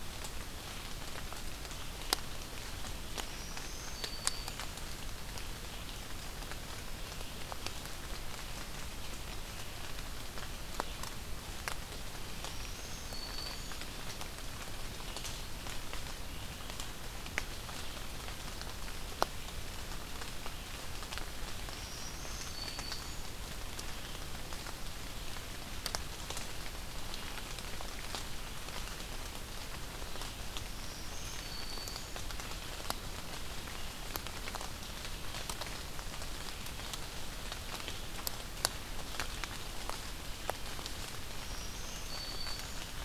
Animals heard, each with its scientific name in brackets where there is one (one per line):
Black-throated Green Warbler (Setophaga virens)